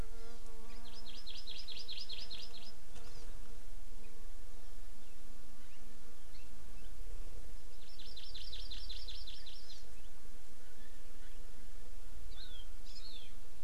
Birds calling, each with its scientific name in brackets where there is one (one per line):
Hawaii Amakihi (Chlorodrepanis virens)